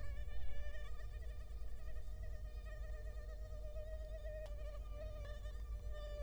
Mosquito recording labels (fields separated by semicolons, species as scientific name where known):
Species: Culex quinquefasciatus; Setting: cup